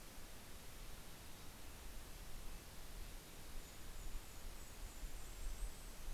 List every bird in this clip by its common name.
Mountain Chickadee, Red-breasted Nuthatch, Golden-crowned Kinglet